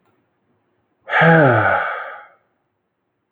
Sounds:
Sigh